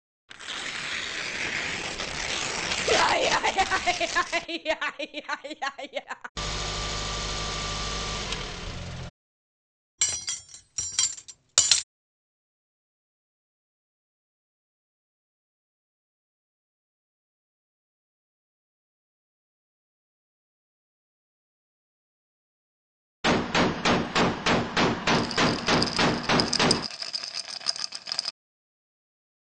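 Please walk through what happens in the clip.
First, at 0.28 seconds, you can hear tearing. Over it, at 2.84 seconds, someone laughs. After that, at 6.35 seconds, there is the sound of a car. Next, at 9.98 seconds, cutlery can be heard. Later, at 23.24 seconds, gunfire is heard. Meanwhile, at 25.11 seconds, you can hear rattling.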